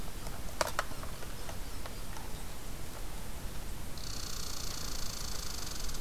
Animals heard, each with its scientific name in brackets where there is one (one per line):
Red Squirrel (Tamiasciurus hudsonicus)